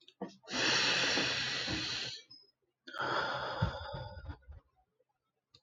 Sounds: Sigh